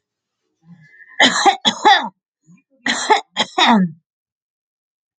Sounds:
Cough